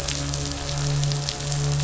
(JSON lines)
{"label": "anthrophony, boat engine", "recorder": "SoundTrap 500"}